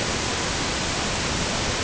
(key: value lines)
label: ambient
recorder: HydroMoth